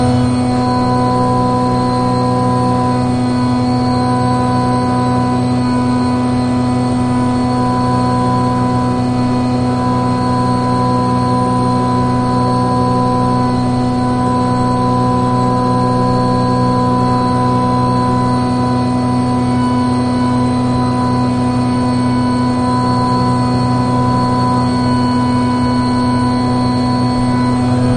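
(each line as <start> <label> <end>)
0.0 An engine hums with an industrial sound. 28.0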